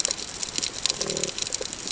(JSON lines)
{"label": "ambient", "recorder": "HydroMoth"}